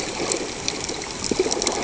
{"label": "ambient", "recorder": "HydroMoth"}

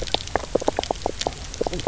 {"label": "biophony, knock croak", "recorder": "SoundTrap 300"}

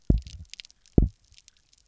{"label": "biophony, double pulse", "recorder": "SoundTrap 300"}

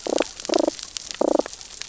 {"label": "biophony, damselfish", "recorder": "SoundTrap 600 or HydroMoth"}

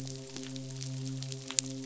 {"label": "biophony, midshipman", "recorder": "SoundTrap 500"}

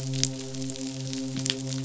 {"label": "biophony, midshipman", "recorder": "SoundTrap 500"}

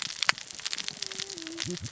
{"label": "biophony, cascading saw", "recorder": "SoundTrap 600 or HydroMoth"}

